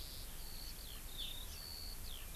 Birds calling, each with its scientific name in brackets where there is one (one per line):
Eurasian Skylark (Alauda arvensis)